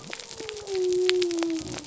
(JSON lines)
{"label": "biophony", "recorder": "SoundTrap 300"}